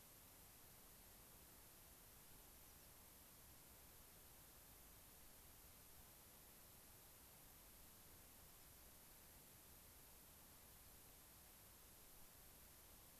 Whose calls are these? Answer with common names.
American Pipit